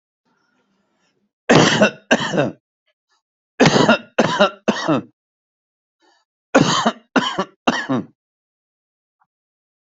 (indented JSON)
{
  "expert_labels": [
    {
      "quality": "good",
      "cough_type": "wet",
      "dyspnea": false,
      "wheezing": false,
      "stridor": false,
      "choking": false,
      "congestion": false,
      "nothing": true,
      "diagnosis": "lower respiratory tract infection",
      "severity": "mild"
    }
  ],
  "age": 39,
  "gender": "male",
  "respiratory_condition": false,
  "fever_muscle_pain": false,
  "status": "healthy"
}